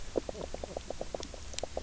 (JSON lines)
{"label": "biophony, knock croak", "recorder": "SoundTrap 300"}